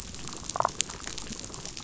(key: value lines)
label: biophony, damselfish
recorder: SoundTrap 500